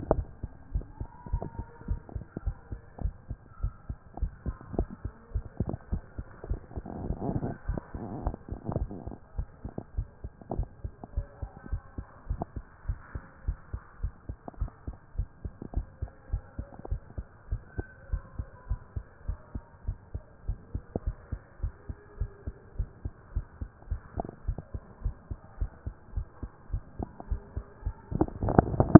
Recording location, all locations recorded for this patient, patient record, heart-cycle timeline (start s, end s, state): pulmonary valve (PV)
aortic valve (AV)+pulmonary valve (PV)+tricuspid valve (TV)+mitral valve (MV)
#Age: Adolescent
#Sex: Male
#Height: nan
#Weight: nan
#Pregnancy status: False
#Murmur: Absent
#Murmur locations: nan
#Most audible location: nan
#Systolic murmur timing: nan
#Systolic murmur shape: nan
#Systolic murmur grading: nan
#Systolic murmur pitch: nan
#Systolic murmur quality: nan
#Diastolic murmur timing: nan
#Diastolic murmur shape: nan
#Diastolic murmur grading: nan
#Diastolic murmur pitch: nan
#Diastolic murmur quality: nan
#Outcome: Abnormal
#Campaign: 2014 screening campaign
0.00	9.26	unannotated
9.26	9.36	diastole
9.36	9.48	S1
9.48	9.64	systole
9.64	9.72	S2
9.72	9.96	diastole
9.96	10.08	S1
10.08	10.22	systole
10.22	10.30	S2
10.30	10.54	diastole
10.54	10.68	S1
10.68	10.84	systole
10.84	10.92	S2
10.92	11.16	diastole
11.16	11.26	S1
11.26	11.42	systole
11.42	11.50	S2
11.50	11.70	diastole
11.70	11.82	S1
11.82	11.96	systole
11.96	12.06	S2
12.06	12.28	diastole
12.28	12.40	S1
12.40	12.56	systole
12.56	12.64	S2
12.64	12.86	diastole
12.86	12.98	S1
12.98	13.14	systole
13.14	13.22	S2
13.22	13.46	diastole
13.46	13.58	S1
13.58	13.72	systole
13.72	13.82	S2
13.82	14.02	diastole
14.02	14.12	S1
14.12	14.28	systole
14.28	14.36	S2
14.36	14.60	diastole
14.60	14.70	S1
14.70	14.86	systole
14.86	14.96	S2
14.96	15.16	diastole
15.16	15.28	S1
15.28	15.44	systole
15.44	15.52	S2
15.52	15.74	diastole
15.74	15.86	S1
15.86	16.02	systole
16.02	16.10	S2
16.10	16.32	diastole
16.32	16.42	S1
16.42	16.58	systole
16.58	16.66	S2
16.66	16.90	diastole
16.90	17.00	S1
17.00	17.16	systole
17.16	17.26	S2
17.26	17.50	diastole
17.50	17.62	S1
17.62	17.76	systole
17.76	17.86	S2
17.86	18.10	diastole
18.10	18.22	S1
18.22	18.38	systole
18.38	18.46	S2
18.46	18.68	diastole
18.68	18.80	S1
18.80	18.96	systole
18.96	19.04	S2
19.04	19.26	diastole
19.26	19.38	S1
19.38	19.54	systole
19.54	19.62	S2
19.62	19.86	diastole
19.86	19.98	S1
19.98	20.14	systole
20.14	20.22	S2
20.22	20.46	diastole
20.46	20.58	S1
20.58	20.74	systole
20.74	20.82	S2
20.82	21.04	diastole
21.04	21.16	S1
21.16	21.32	systole
21.32	21.40	S2
21.40	21.62	diastole
21.62	21.74	S1
21.74	21.88	systole
21.88	21.96	S2
21.96	22.18	diastole
22.18	22.30	S1
22.30	22.46	systole
22.46	22.54	S2
22.54	22.78	diastole
22.78	22.88	S1
22.88	23.04	systole
23.04	23.12	S2
23.12	23.34	diastole
23.34	23.46	S1
23.46	23.60	systole
23.60	23.70	S2
23.70	23.90	diastole
23.90	24.00	S1
24.00	24.16	systole
24.16	24.26	S2
24.26	24.46	diastole
24.46	24.58	S1
24.58	24.74	systole
24.74	24.82	S2
24.82	25.04	diastole
25.04	25.16	S1
25.16	25.30	systole
25.30	25.38	S2
25.38	25.60	diastole
25.60	25.70	S1
25.70	25.86	systole
25.86	25.94	S2
25.94	26.14	diastole
26.14	26.26	S1
26.26	26.42	systole
26.42	26.50	S2
26.50	26.72	diastole
26.72	26.82	S1
26.82	26.98	systole
26.98	27.08	S2
27.08	27.30	diastole
27.30	27.42	S1
27.42	27.56	systole
27.56	27.66	S2
27.66	27.84	diastole
27.84	28.99	unannotated